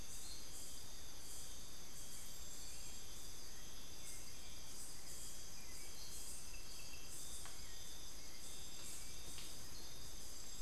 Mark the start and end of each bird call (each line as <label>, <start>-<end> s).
Hauxwell's Thrush (Turdus hauxwelli), 0.0-10.6 s